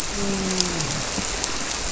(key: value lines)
label: biophony, grouper
recorder: SoundTrap 300